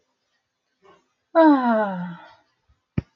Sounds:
Sigh